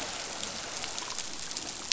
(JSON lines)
{"label": "biophony", "recorder": "SoundTrap 500"}